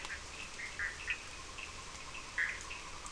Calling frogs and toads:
Bischoff's tree frog, Cochran's lime tree frog, yellow cururu toad
5:30am

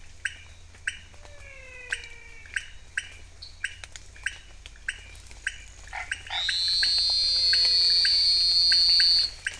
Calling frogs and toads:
pointedbelly frog, menwig frog, dwarf tree frog, Chaco tree frog, Elachistocleis matogrosso
7:00pm

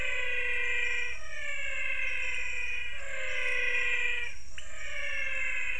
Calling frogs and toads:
pointedbelly frog, menwig frog
5:45pm

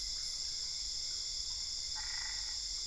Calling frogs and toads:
Boana albopunctata
1:30am

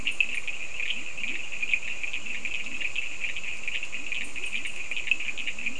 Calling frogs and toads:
Leptodactylus latrans, Cochran's lime tree frog
4:15am

